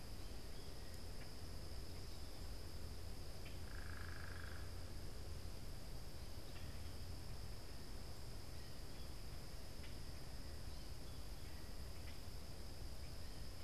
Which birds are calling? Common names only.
American Goldfinch, Common Grackle, unidentified bird